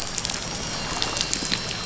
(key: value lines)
label: anthrophony, boat engine
recorder: SoundTrap 500